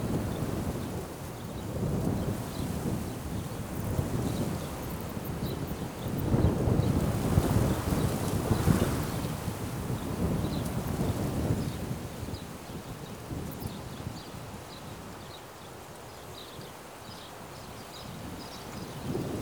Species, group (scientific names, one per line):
Eumodicogryllus theryi
Orthoptera